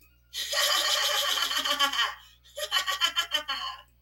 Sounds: Laughter